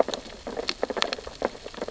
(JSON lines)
{"label": "biophony, sea urchins (Echinidae)", "recorder": "SoundTrap 600 or HydroMoth"}